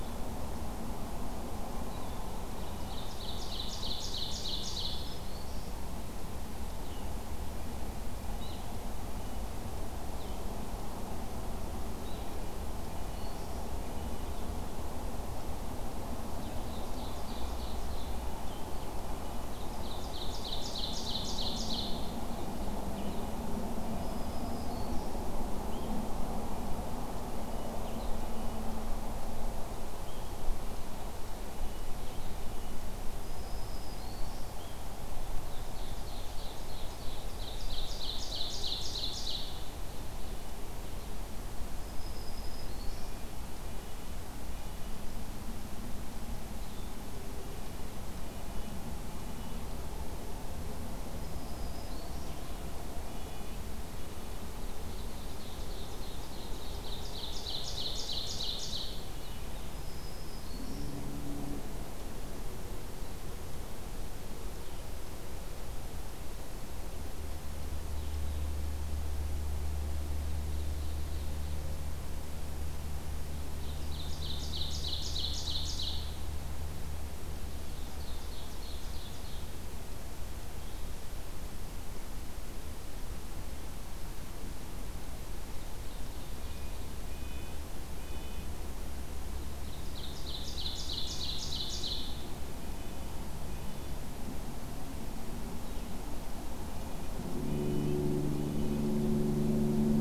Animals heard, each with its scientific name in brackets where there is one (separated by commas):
Ovenbird (Seiurus aurocapilla), Blue-headed Vireo (Vireo solitarius), Black-throated Green Warbler (Setophaga virens), Red-breasted Nuthatch (Sitta canadensis)